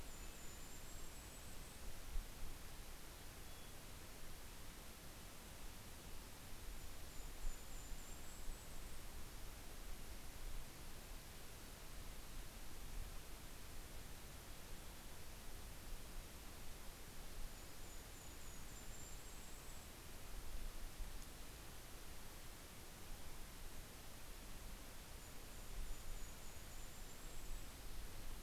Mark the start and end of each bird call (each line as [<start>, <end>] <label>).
[0.00, 1.38] Red-breasted Nuthatch (Sitta canadensis)
[0.00, 2.18] Golden-crowned Kinglet (Regulus satrapa)
[2.18, 4.88] Mountain Chickadee (Poecile gambeli)
[5.78, 10.28] Golden-crowned Kinglet (Regulus satrapa)
[13.68, 15.78] Mountain Chickadee (Poecile gambeli)
[17.38, 20.28] Golden-crowned Kinglet (Regulus satrapa)
[24.58, 28.38] Golden-crowned Kinglet (Regulus satrapa)